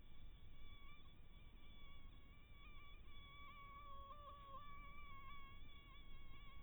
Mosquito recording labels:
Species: Anopheles harrisoni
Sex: female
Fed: blood-fed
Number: one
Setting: cup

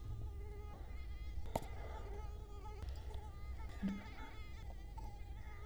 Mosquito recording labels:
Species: Culex quinquefasciatus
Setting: cup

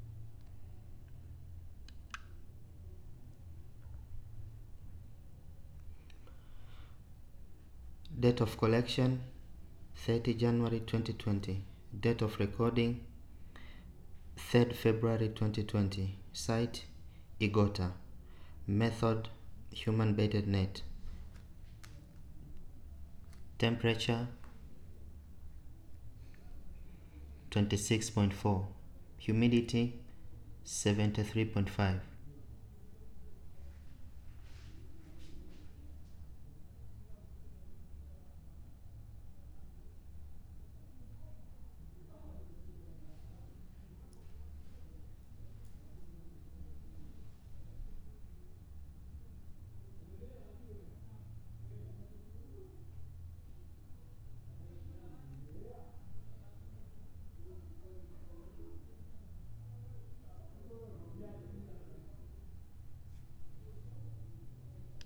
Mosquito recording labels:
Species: no mosquito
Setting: cup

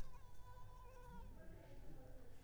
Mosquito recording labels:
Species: Mansonia uniformis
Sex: female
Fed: unfed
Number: one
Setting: cup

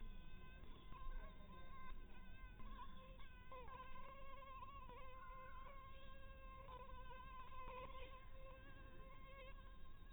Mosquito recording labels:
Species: Anopheles maculatus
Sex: female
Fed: unfed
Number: one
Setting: cup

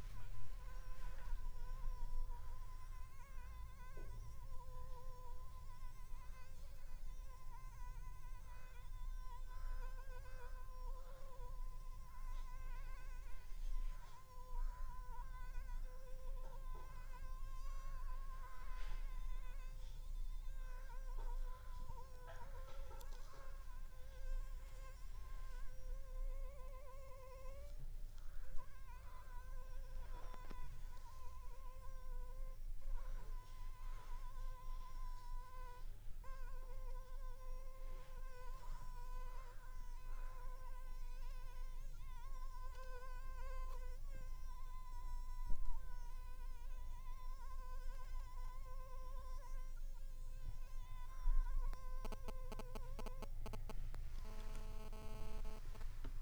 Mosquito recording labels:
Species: Anopheles funestus s.s.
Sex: female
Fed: unfed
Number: one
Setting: cup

